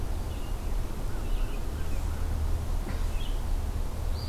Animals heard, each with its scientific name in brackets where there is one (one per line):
Red-eyed Vireo (Vireo olivaceus)